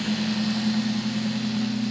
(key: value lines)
label: anthrophony, boat engine
recorder: SoundTrap 500